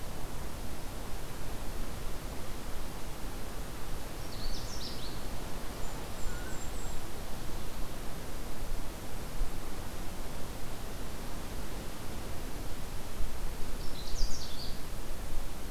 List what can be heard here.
Canada Warbler, Golden-crowned Kinglet